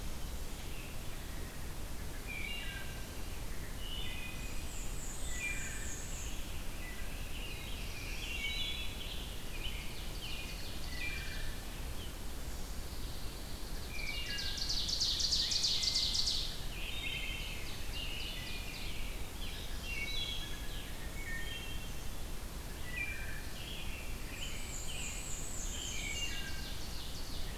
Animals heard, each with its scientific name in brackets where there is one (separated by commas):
Ovenbird (Seiurus aurocapilla), Pine Warbler (Setophaga pinus), Black-throated Blue Warbler (Setophaga caerulescens), Wood Thrush (Hylocichla mustelina), Black-and-white Warbler (Mniotilta varia), American Robin (Turdus migratorius)